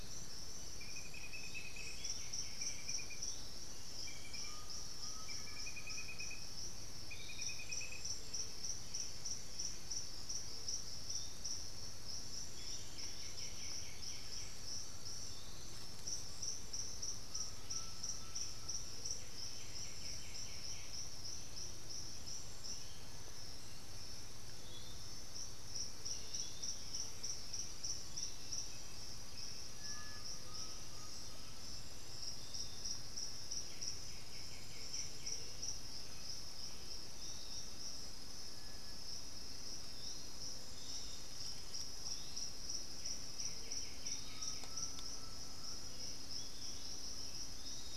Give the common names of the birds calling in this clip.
Piratic Flycatcher, White-winged Becard, Undulated Tinamou, Black-billed Thrush, unidentified bird